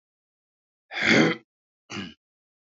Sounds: Throat clearing